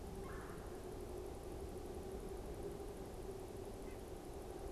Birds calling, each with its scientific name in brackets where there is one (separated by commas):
Red-bellied Woodpecker (Melanerpes carolinus), White-breasted Nuthatch (Sitta carolinensis)